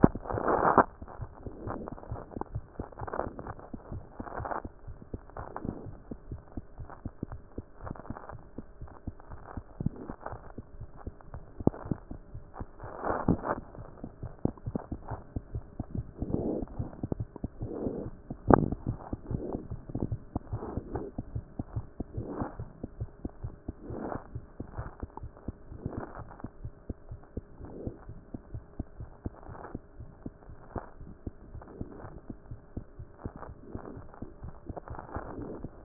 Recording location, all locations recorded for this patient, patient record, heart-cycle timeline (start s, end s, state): mitral valve (MV)
mitral valve (MV)
#Age: Infant
#Sex: Female
#Height: 68.0 cm
#Weight: 7.6 kg
#Pregnancy status: False
#Murmur: Absent
#Murmur locations: nan
#Most audible location: nan
#Systolic murmur timing: nan
#Systolic murmur shape: nan
#Systolic murmur grading: nan
#Systolic murmur pitch: nan
#Systolic murmur quality: nan
#Diastolic murmur timing: nan
#Diastolic murmur shape: nan
#Diastolic murmur grading: nan
#Diastolic murmur pitch: nan
#Diastolic murmur quality: nan
#Outcome: Normal
#Campaign: 2014 screening campaign
0.00	5.69	unannotated
5.69	5.86	diastole
5.86	5.95	S1
5.95	6.10	systole
6.10	6.17	S2
6.17	6.30	diastole
6.30	6.40	S1
6.40	6.56	systole
6.56	6.64	S2
6.64	6.78	diastole
6.78	6.88	S1
6.88	7.04	systole
7.04	7.12	S2
7.12	7.30	diastole
7.30	7.40	S1
7.40	7.56	systole
7.56	7.64	S2
7.64	7.82	diastole
7.82	7.94	S1
7.94	8.08	systole
8.08	8.18	S2
8.18	8.34	diastole
8.34	8.42	S1
8.42	8.56	systole
8.56	8.64	S2
8.64	8.80	diastole
8.80	8.90	S1
8.90	9.06	systole
9.06	9.14	S2
9.14	9.32	diastole
9.32	9.42	S1
9.42	9.56	systole
9.56	9.64	S2
9.64	9.80	diastole
9.80	35.84	unannotated